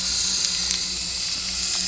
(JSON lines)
{"label": "anthrophony, boat engine", "recorder": "SoundTrap 300"}